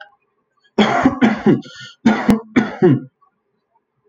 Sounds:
Cough